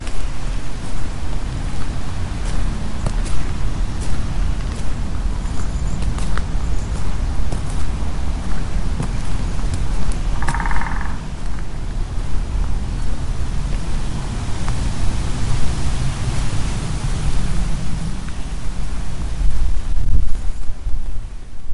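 Footsteps on soft ground producing a steady, muffled sound. 0.0 - 21.7
A cricket chirps rhythmically in the background. 5.1 - 7.5
Footsteps of a man walking steadily. 5.1 - 7.5
A woodpecker pecks rhythmically, producing a repeating tapping sound. 9.9 - 11.3
Footsteps of a man walking steadily. 9.9 - 11.3
A car engine gradually fades into the distance as it passes by. 14.7 - 18.3

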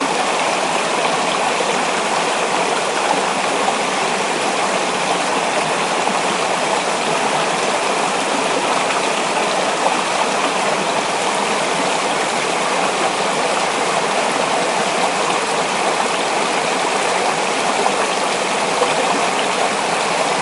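A brook flows gently, creating continuous water movement and a soft trickling sound. 0.0 - 20.4

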